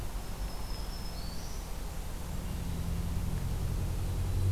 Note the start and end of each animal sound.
[0.00, 1.79] Black-throated Green Warbler (Setophaga virens)

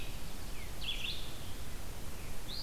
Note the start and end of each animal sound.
[0.00, 2.62] Red-eyed Vireo (Vireo olivaceus)

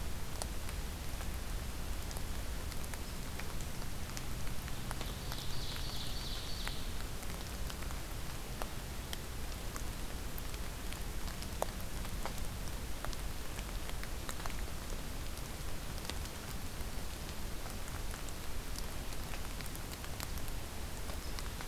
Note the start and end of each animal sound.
[4.83, 6.92] Ovenbird (Seiurus aurocapilla)

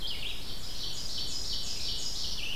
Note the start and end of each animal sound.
[0.00, 2.56] Red-eyed Vireo (Vireo olivaceus)
[0.06, 2.56] Ovenbird (Seiurus aurocapilla)
[1.80, 2.56] Black-throated Blue Warbler (Setophaga caerulescens)

